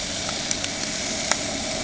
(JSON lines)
{"label": "ambient", "recorder": "HydroMoth"}